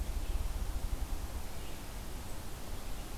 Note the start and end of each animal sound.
[0.00, 1.77] Ruffed Grouse (Bonasa umbellus)

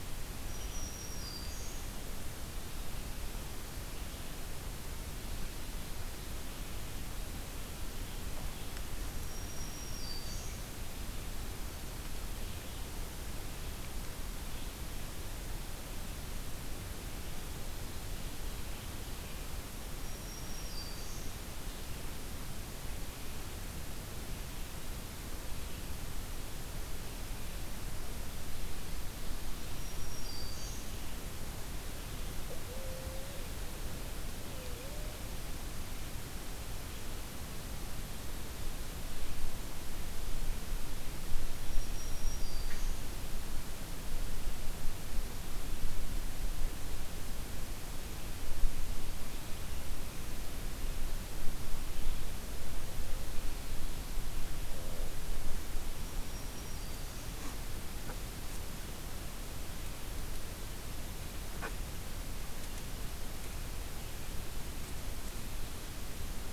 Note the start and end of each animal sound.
[0.00, 2.24] Black-throated Green Warbler (Setophaga virens)
[8.89, 11.07] Black-throated Green Warbler (Setophaga virens)
[19.70, 21.49] Black-throated Green Warbler (Setophaga virens)
[29.41, 31.33] Black-throated Green Warbler (Setophaga virens)
[31.02, 35.50] Barred Owl (Strix varia)
[41.31, 43.29] Black-throated Green Warbler (Setophaga virens)
[55.85, 57.80] Black-throated Green Warbler (Setophaga virens)

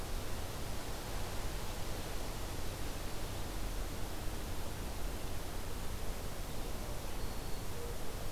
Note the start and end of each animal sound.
[0.00, 8.32] Red-eyed Vireo (Vireo olivaceus)
[7.19, 7.68] Black-throated Green Warbler (Setophaga virens)

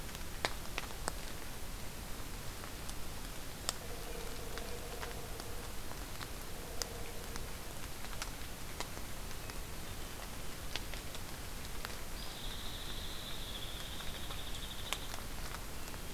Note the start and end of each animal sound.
[12.13, 15.17] Hairy Woodpecker (Dryobates villosus)

